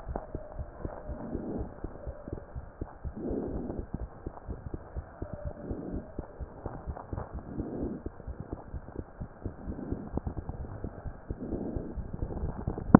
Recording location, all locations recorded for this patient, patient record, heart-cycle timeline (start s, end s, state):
pulmonary valve (PV)
aortic valve (AV)+pulmonary valve (PV)+tricuspid valve (TV)+mitral valve (MV)
#Age: Child
#Sex: Male
#Height: 110.0 cm
#Weight: 15.1 kg
#Pregnancy status: False
#Murmur: Absent
#Murmur locations: nan
#Most audible location: nan
#Systolic murmur timing: nan
#Systolic murmur shape: nan
#Systolic murmur grading: nan
#Systolic murmur pitch: nan
#Systolic murmur quality: nan
#Diastolic murmur timing: nan
#Diastolic murmur shape: nan
#Diastolic murmur grading: nan
#Diastolic murmur pitch: nan
#Diastolic murmur quality: nan
#Outcome: Normal
#Campaign: 2015 screening campaign
0.00	2.05	unannotated
2.05	2.16	S1
2.16	2.30	systole
2.30	2.39	S2
2.39	2.53	diastole
2.53	2.64	S1
2.64	2.79	systole
2.79	2.88	S2
2.88	3.02	diastole
3.02	3.16	S1
3.16	3.28	systole
3.28	3.37	S2
3.37	3.51	diastole
3.51	3.61	S1
3.61	3.77	systole
3.77	3.84	S2
3.84	3.99	diastole
3.99	4.08	S1
4.08	4.23	systole
4.23	4.33	S2
4.33	4.46	diastole
4.46	4.58	S1
4.58	4.71	systole
4.71	4.80	S2
4.80	4.94	diastole
4.94	5.04	S1
5.04	5.19	systole
5.19	5.28	S2
5.28	5.44	diastole
5.44	5.54	S1
5.54	5.68	systole
5.68	5.77	S2
5.77	5.92	diastole
5.92	6.02	S1
6.02	6.15	systole
6.15	6.24	S2
6.24	6.38	diastole
6.38	6.48	S1
6.48	6.63	systole
6.63	6.72	S2
6.72	6.86	diastole
6.86	6.96	S1
6.96	7.09	systole
7.09	7.20	S2
7.20	7.33	diastole
7.33	7.42	S1
7.42	7.57	systole
7.57	7.65	S2
7.65	7.81	diastole
7.81	7.88	S1
7.88	12.99	unannotated